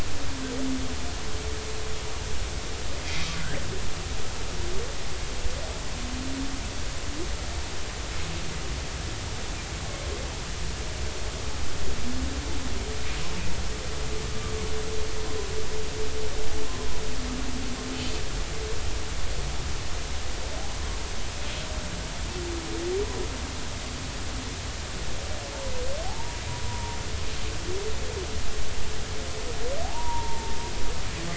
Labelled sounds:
3.3	3.6	humpback whale, 1.3 to 2.0 kHz
26.0	27.0	humpback whale, 0.80 to 1.0 kHz
29.8	30.6	humpback whale, 0.80 to 1.0 kHz

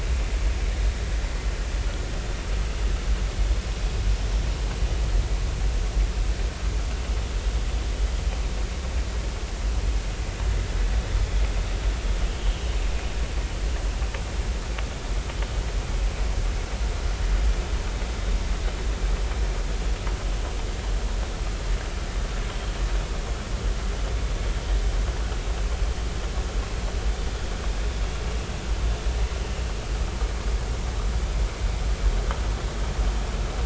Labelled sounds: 12.5	12.8	vessel noise, 2.9 to 3.1 kHz

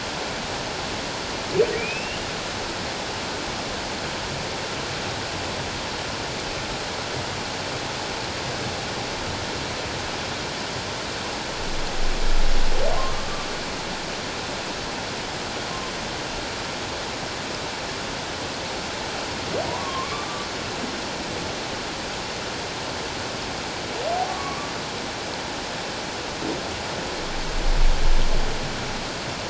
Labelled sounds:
1.8	2.2	humpback whale, 2.2 to 2.9 kHz
13.0	13.3	humpback whale, 1.0 to 1.2 kHz
19.8	20.5	humpback whale, 1.0 to 1.2 kHz
24.3	24.7	humpback whale, 1.0 to 1.2 kHz

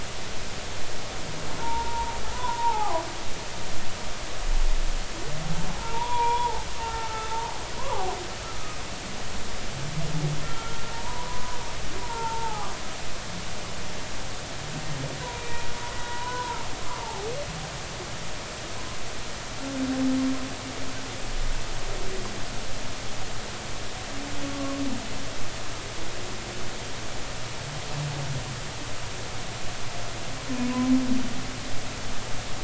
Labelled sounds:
1.6	3.0	humpback whale, 0.80 to 1.5 kHz
5.8	7.3	humpback whale, 0.80 to 2.4 kHz
7.8	8.1	humpback whale, 0.80 to 1.2 kHz
10.4	11.6	humpback whale, 0.86 to 1.5 kHz
12.0	12.7	humpback whale, 0.80 to 1.5 kHz
15.2	15.7	humpback whale, 0.93 to 2.5 kHz
16.1	17.3	humpback whale, 0.80 to 1.1 kHz
24.4	24.8	humpback whale, 0.99 to 1.2 kHz

